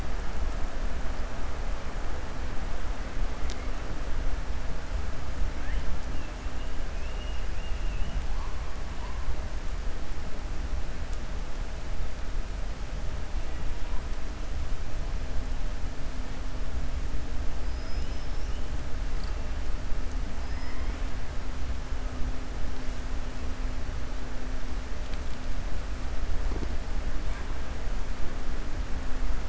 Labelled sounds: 6.9	8.1	killer whale, 2.5 to 3.3 kHz
17.6	18.5	killer whale, 4.9 to 6.1 kHz

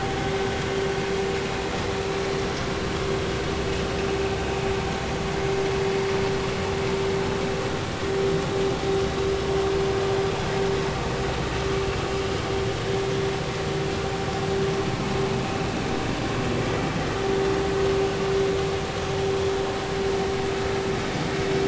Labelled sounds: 5.3	5.6	vessel noise, 2.0 to 2.2 kHz

